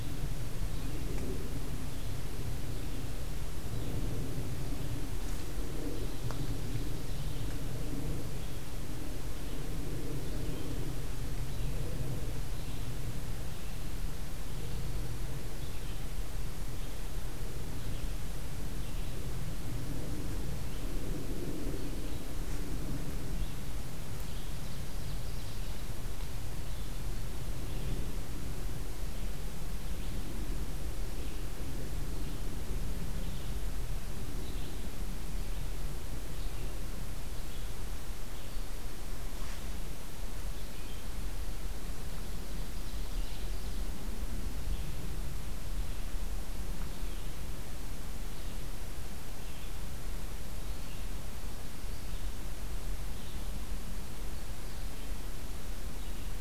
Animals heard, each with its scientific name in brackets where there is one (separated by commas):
Red-eyed Vireo (Vireo olivaceus), Ovenbird (Seiurus aurocapilla)